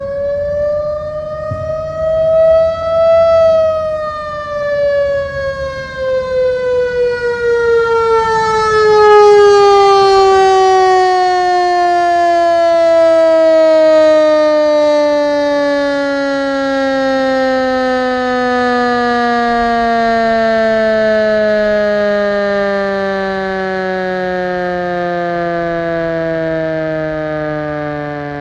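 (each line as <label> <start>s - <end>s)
A loud, wailing siren sounds rhythmically and urgently. 0.0s - 27.4s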